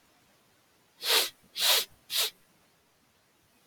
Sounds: Sniff